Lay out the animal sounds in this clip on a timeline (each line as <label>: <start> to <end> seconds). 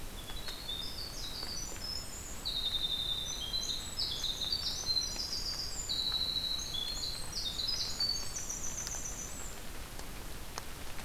Winter Wren (Troglodytes hiemalis): 0.0 to 9.7 seconds